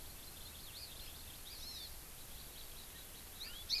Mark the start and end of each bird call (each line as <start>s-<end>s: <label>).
0.0s-3.8s: Hawaii Amakihi (Chlorodrepanis virens)
3.4s-3.6s: Erckel's Francolin (Pternistis erckelii)